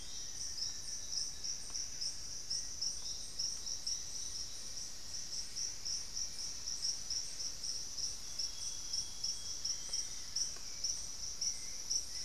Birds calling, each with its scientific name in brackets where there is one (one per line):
Amazonian Barred-Woodcreeper (Dendrocolaptes certhia)
Black-faced Antthrush (Formicarius analis)
Buff-breasted Wren (Cantorchilus leucotis)
Hauxwell's Thrush (Turdus hauxwelli)
Elegant Woodcreeper (Xiphorhynchus elegans)
Amazonian Grosbeak (Cyanoloxia rothschildii)